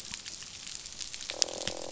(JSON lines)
{"label": "biophony, croak", "recorder": "SoundTrap 500"}